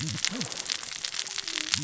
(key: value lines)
label: biophony, cascading saw
recorder: SoundTrap 600 or HydroMoth